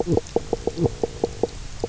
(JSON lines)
{"label": "biophony, knock croak", "recorder": "SoundTrap 300"}